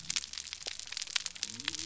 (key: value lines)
label: biophony
recorder: SoundTrap 300